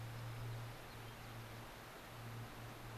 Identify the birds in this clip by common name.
White-crowned Sparrow